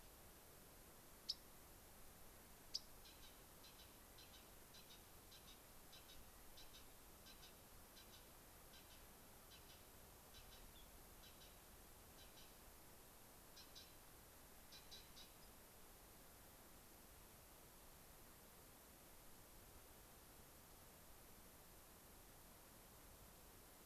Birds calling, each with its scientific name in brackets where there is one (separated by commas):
Dark-eyed Junco (Junco hyemalis), unidentified bird